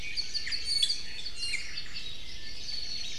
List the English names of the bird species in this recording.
Iiwi, Apapane